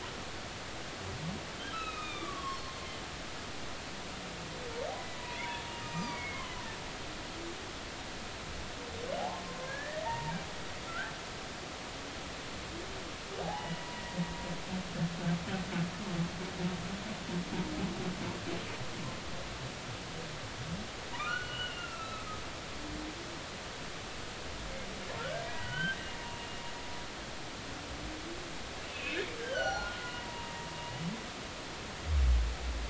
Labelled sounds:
1.5	2.7	humpback whale, 1.0 to 5.5 kHz
5.2	6.2	humpback whale, 0.90 to 5.0 kHz
6.9	7.6	humpback whale, 2.0 to 2.5 kHz
9.2	10.3	humpback whale, 0.80 to 2.0 kHz
10.9	11.1	humpback whale, 1.3 to 1.8 kHz
13.4	13.9	humpback whale, 0.80 to 3.0 kHz
21.1	22.3	humpback whale, 0.86 to 4.4 kHz
25.2	26.0	humpback whale, 0.93 to 3.2 kHz
28.9	30.7	humpback whale, 0.80 to 6.0 kHz

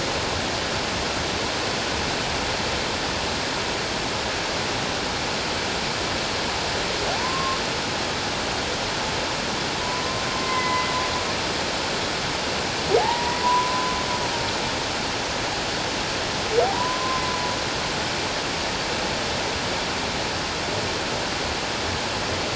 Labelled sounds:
7.1	7.6	humpback whale, 0.78 to 1.1 kHz
9.8	10.9	humpback whale, 0.94 to 2.2 kHz
13.0	14.0	humpback whale, 0.78 to 1.1 kHz
16.7	17.2	humpback whale, 0.91 to 1.1 kHz

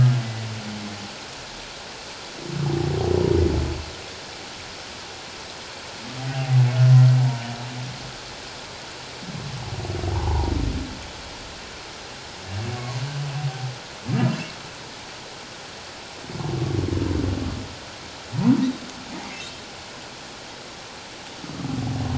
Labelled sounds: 6.3	6.6	humpback whale, 0.78 to 0.84 kHz
10.1	10.5	humpback whale, 0.78 to 1.1 kHz

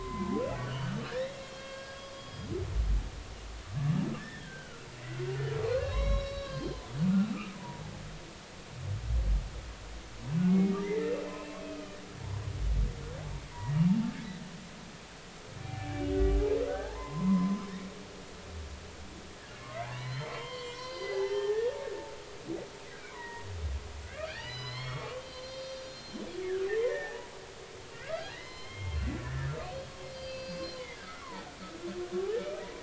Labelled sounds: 0.5	2.5	humpback whale, 0.90 to 5.0 kHz
4.2	4.9	humpback whale, 1.3 to 2.0 kHz
5.7	6.8	humpback whale, 0.96 to 5.6 kHz
7.3	7.8	humpback whale, 0.86 to 1.4 kHz
10.5	11.2	humpback whale, 1.7 to 2.2 kHz
13.5	13.8	humpback whale, 1.9 to 2.0 kHz
15.6	17.6	humpback whale, 0.80 to 2.4 kHz
19.6	21.8	humpback whale, 0.80 to 5.7 kHz
23.1	23.5	humpback whale, 0.90 to 2.0 kHz
24.3	27.3	humpback whale, 0.80 to 6.0 kHz
28.1	29.5	humpback whale, 0.96 to 5.2 kHz
30.0	31.5	humpback whale, 0.80 to 4.8 kHz
32.1	32.6	humpback whale, 1.1 to 2.4 kHz

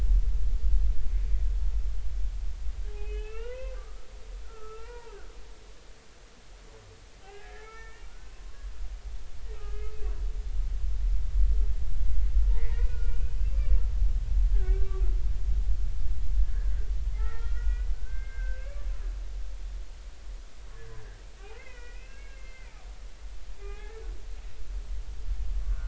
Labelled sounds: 2.9	5.2	humpback whale, 0.83 to 3.1 kHz
7.2	8.7	humpback whale, 0.80 to 2.3 kHz
9.6	9.9	humpback whale, 1.2 to 2.6 kHz
12.5	13.2	humpback whale, 1.4 to 2.6 kHz
14.5	15.0	humpback whale, 1.1 to 1.7 kHz
17.1	18.9	humpback whale, 0.80 to 2.7 kHz
21.5	22.8	humpback whale, 1.4 to 2.8 kHz
23.6	24.0	humpback whale, 0.80 to 2.6 kHz
25.7	25.8	humpback whale, 1.4 to 1.6 kHz

